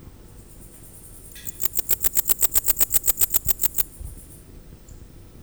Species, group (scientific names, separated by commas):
Pholidoptera macedonica, Orthoptera